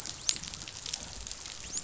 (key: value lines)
label: biophony, dolphin
recorder: SoundTrap 500